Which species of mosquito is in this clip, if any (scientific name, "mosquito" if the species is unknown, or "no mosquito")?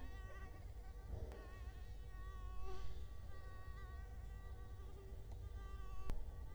Culex quinquefasciatus